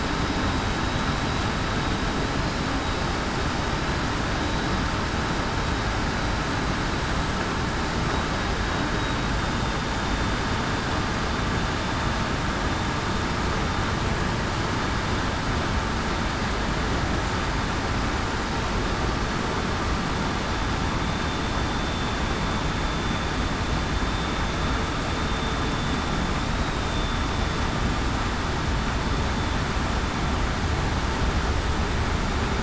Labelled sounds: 9.4	9.7	vessel noise, 3.6 to 3.7 kHz
21.0	21.4	vessel noise, 3.5 to 3.6 kHz
26.8	27.2	vessel noise, 3.5 to 3.6 kHz

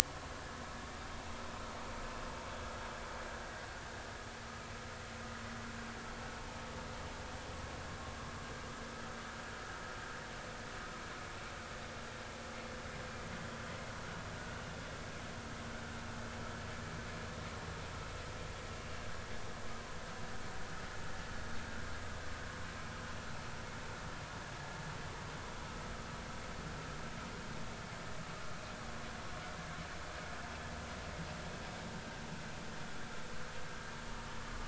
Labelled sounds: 18.7	19.0	vessel noise, 2.7 to 2.9 kHz

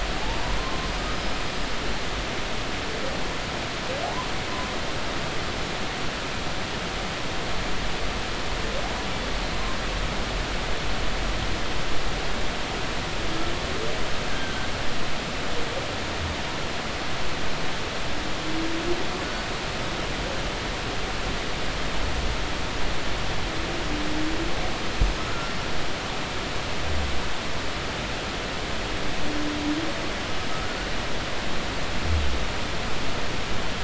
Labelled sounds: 0.6	1.4	humpback whale, 0.93 to 5.2 kHz
14.3	14.7	humpback whale, 1.5 to 1.7 kHz
25.2	25.7	humpback whale, 1.2 to 5.5 kHz
30.5	30.8	humpback whale, 1.2 to 1.5 kHz

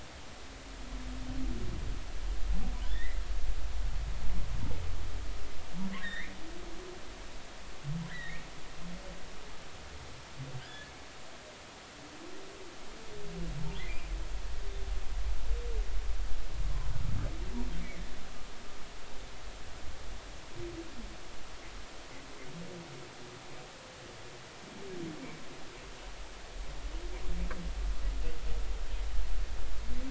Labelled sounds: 2.8	3.2	humpback whale, 1.7 to 3.8 kHz
6.0	6.3	humpback whale, 1.4 to 3.9 kHz
8.1	8.5	humpback whale, 1.5 to 2.5 kHz
10.6	10.9	humpback whale, 1.5 to 1.8 kHz
13.8	14.1	humpback whale, 1.9 to 2.6 kHz

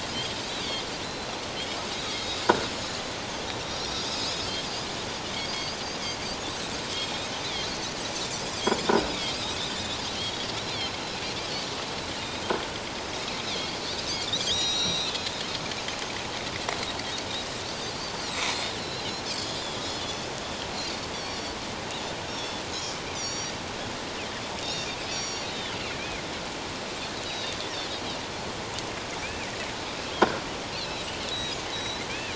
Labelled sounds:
1.0	2.4	Pacific white-sided dolphin, 3.7 to 4.1 kHz
3.6	4.3	Pacific white-sided dolphin, 3.7 to 5.8 kHz
7.0	7.3	Pacific white-sided dolphin, 3.4 to 7.8 kHz
9.5	10.5	Pacific white-sided dolphin, 3.1 to 3.9 kHz
10.7	11.0	Pacific white-sided dolphin, 5.2 to 5.7 kHz
13.5	13.8	Pacific white-sided dolphin, 3.1 to 4.7 kHz
14.5	15.3	Pacific white-sided dolphin, 3.1 to 7.8 kHz
17.7	18.5	Pacific white-sided dolphin, 3.5 to 4.9 kHz
18.8	20.3	Pacific white-sided dolphin, 3.2 to 6.2 kHz
21.1	22.6	Pacific white-sided dolphin, 3.3 to 5.6 kHz
23.1	23.6	Pacific white-sided dolphin, 4.4 to 7.3 kHz
24.6	25.8	Pacific white-sided dolphin, 2.9 to 7.9 kHz
27.2	27.6	Pacific white-sided dolphin, 3.5 to 4.0 kHz
29.2	29.5	Pacific white-sided dolphin, 2.1 to 2.7 kHz
30.7	32.3	Pacific white-sided dolphin, 2.3 to 7.9 kHz

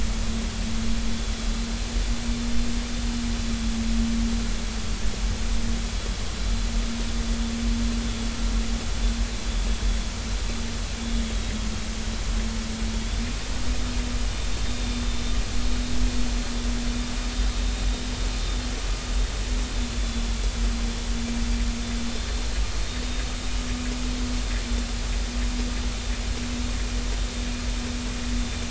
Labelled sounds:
14.7	15.1	vessel noise, 3.6 to 3.7 kHz
20.0	20.2	vessel noise, 3.4 to 3.5 kHz

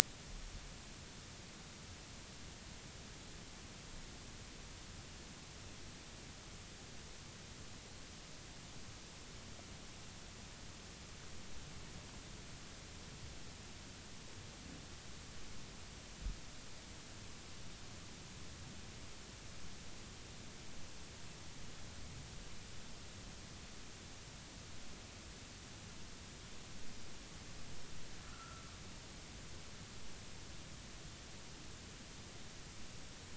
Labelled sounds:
28.2	28.6	humpback whale, 1.2 to 1.5 kHz

